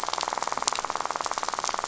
{"label": "biophony, rattle", "recorder": "SoundTrap 500"}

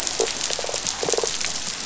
{"label": "biophony", "recorder": "SoundTrap 500"}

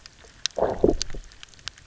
{"label": "biophony, low growl", "recorder": "SoundTrap 300"}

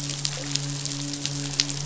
{"label": "biophony, midshipman", "recorder": "SoundTrap 500"}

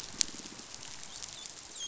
{"label": "biophony", "recorder": "SoundTrap 500"}
{"label": "biophony, dolphin", "recorder": "SoundTrap 500"}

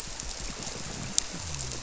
{"label": "biophony", "recorder": "SoundTrap 300"}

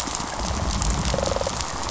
{"label": "biophony, rattle response", "recorder": "SoundTrap 500"}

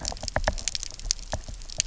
{"label": "biophony, knock", "recorder": "SoundTrap 300"}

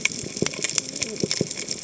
{"label": "biophony, cascading saw", "recorder": "HydroMoth"}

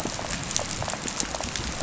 {"label": "biophony, rattle", "recorder": "SoundTrap 500"}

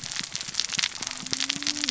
{"label": "biophony, cascading saw", "recorder": "SoundTrap 600 or HydroMoth"}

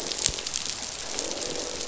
{"label": "biophony, croak", "recorder": "SoundTrap 500"}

